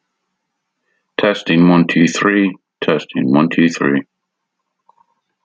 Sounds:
Cough